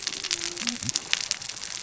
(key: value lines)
label: biophony, cascading saw
recorder: SoundTrap 600 or HydroMoth